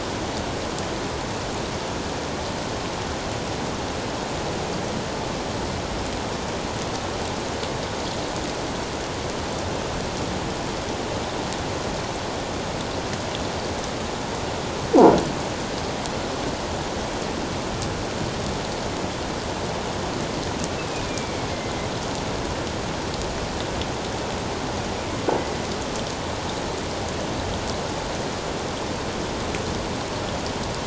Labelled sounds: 20.9	21.5	killer whale, northern resident, A clan, AA subclan, A04 pod, 2.2 to 2.6 kHz

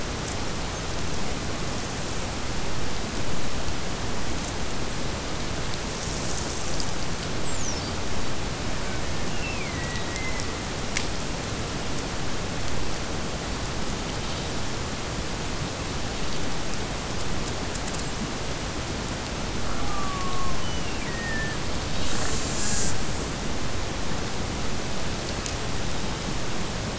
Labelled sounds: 9.1	10.2	killer whale, Bigg's (transient), Gulf of Alaska transient, 1.7 to 3.1 kHz
19.6	21.6	killer whale, Bigg's (transient), Gulf of Alaska transient, 0.48 to 3.1 kHz

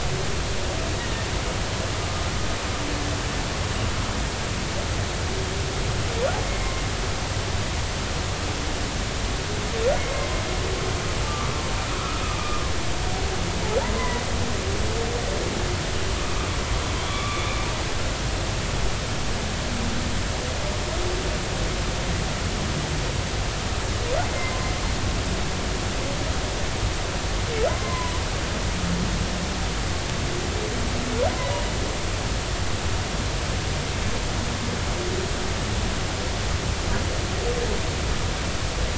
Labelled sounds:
6.5	6.7	humpback whale, 2.0 to 2.2 kHz
10.0	10.3	humpback whale, 2.0 to 2.3 kHz
11.2	11.5	humpback whale, 1.1 to 1.2 kHz
13.9	14.2	humpback whale, 0.93 to 2.1 kHz
17.0	17.4	humpback whale, 1.1 to 3.5 kHz
24.3	24.6	humpback whale, 2.0 to 2.1 kHz
27.7	28.2	humpback whale, 0.93 to 2.1 kHz

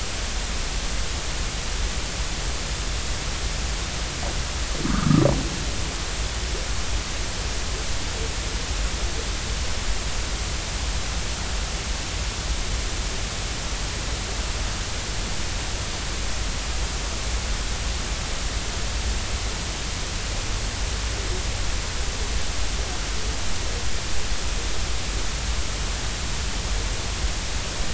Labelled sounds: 4.9	5.2	humpback whale, 1.1 to 1.5 kHz

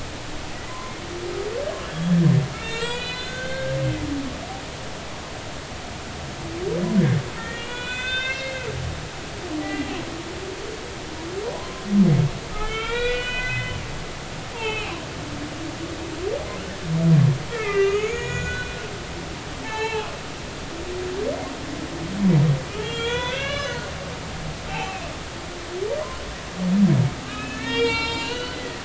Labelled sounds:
0.7	1.0	humpback whale, 0.96 to 1.2 kHz
2.5	3.7	humpback whale, 1.3 to 4.5 kHz
7.4	8.7	humpback whale, 1.4 to 4.9 kHz
9.6	9.9	humpback whale, 1.9 to 2.0 kHz
11.5	13.8	humpback whale, 0.96 to 4.1 kHz
14.5	15.0	humpback whale, 2.1 to 3.3 kHz
17.5	18.7	humpback whale, 1.1 to 6.9 kHz
19.6	20.1	humpback whale, 0.80 to 4.1 kHz
22.8	25.1	humpback whale, 0.80 to 6.0 kHz
27.2	28.8	humpback whale, 0.86 to 5.6 kHz

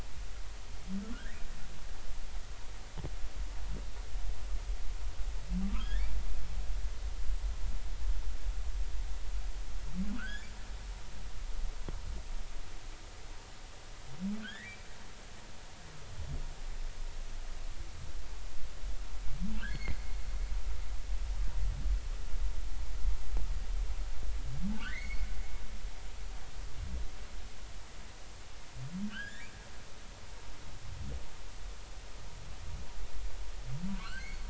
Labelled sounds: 1.1	1.4	humpback whale, 1.3 to 2.0 kHz
5.7	6.1	humpback whale, 0.93 to 3.6 kHz
10.2	10.5	humpback whale, 1.2 to 3.6 kHz
14.4	14.9	humpback whale, 1.4 to 3.8 kHz
19.5	20.0	humpback whale, 1.9 to 3.5 kHz
24.8	25.3	humpback whale, 1.3 to 4.5 kHz
29.1	29.5	humpback whale, 1.3 to 3.4 kHz
34.0	34.4	humpback whale, 1.2 to 4.7 kHz

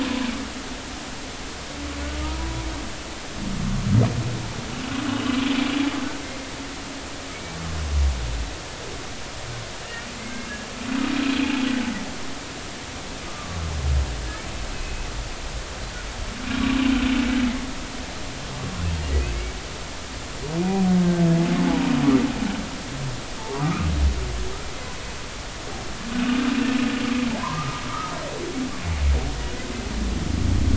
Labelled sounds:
2.2	2.6	humpback whale, 0.90 to 1.0 kHz
9.8	10.5	humpback whale, 2.0 to 2.9 kHz
13.3	13.6	humpback whale, 1.1 to 1.3 kHz
21.0	21.3	humpback whale, 1.5 to 1.6 kHz
23.5	23.9	humpback whale, 0.93 to 1.5 kHz
27.4	27.8	humpback whale, 0.90 to 1.4 kHz

